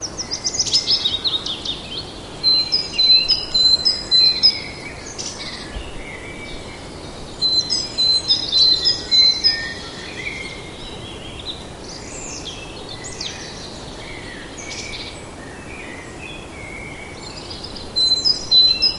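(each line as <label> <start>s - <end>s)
Birds chirping quietly in the distance. 0.0s - 19.0s
Quiet sea waves in the background. 0.0s - 19.0s
A bird chirps loudly and repeatedly nearby. 2.3s - 4.6s
A bird chirps loudly and repeatedly nearby. 7.3s - 9.9s
A bird chirps loudly and repeatedly nearby. 17.8s - 19.0s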